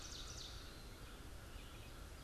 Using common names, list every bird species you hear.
Ovenbird, American Crow, Red-eyed Vireo